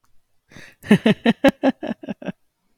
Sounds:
Laughter